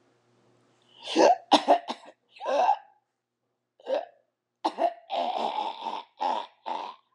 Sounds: Throat clearing